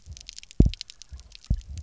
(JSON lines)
{"label": "biophony, double pulse", "recorder": "SoundTrap 300"}